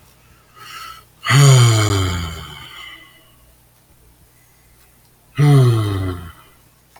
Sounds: Sigh